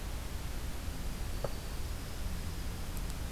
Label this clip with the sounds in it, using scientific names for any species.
Setophaga virens, Junco hyemalis